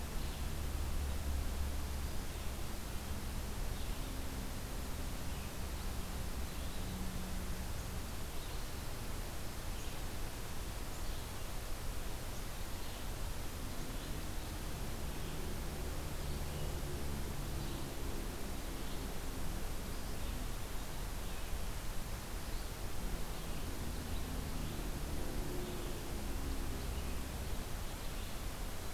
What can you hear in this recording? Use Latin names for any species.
Vireo olivaceus